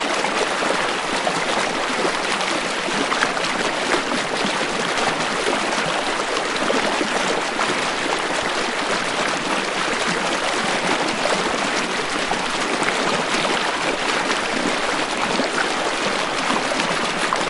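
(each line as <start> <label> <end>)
0.0 A river flows steadily and loudly nearby. 17.5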